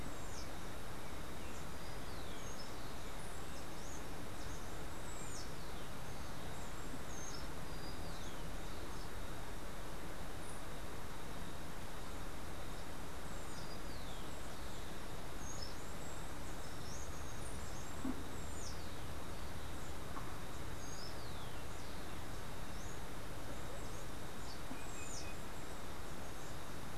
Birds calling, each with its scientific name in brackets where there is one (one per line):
Rufous-collared Sparrow (Zonotrichia capensis)
Steely-vented Hummingbird (Saucerottia saucerottei)
Green Jay (Cyanocorax yncas)